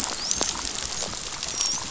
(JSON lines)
{"label": "biophony, dolphin", "recorder": "SoundTrap 500"}